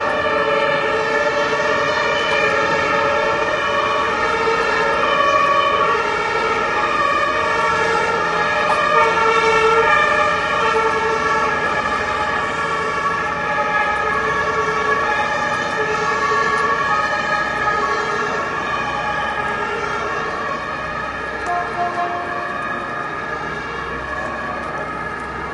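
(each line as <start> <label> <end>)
0.0 A piercing and rhythmic siren sounds. 25.5
0.0 Distant vehicle engines rumbling continuously in a city. 25.5
0.0 Frequent clicking typing sounds from a keyboard. 25.5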